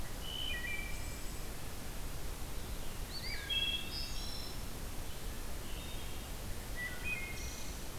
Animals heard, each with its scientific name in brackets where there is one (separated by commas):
Wood Thrush (Hylocichla mustelina), Eastern Wood-Pewee (Contopus virens)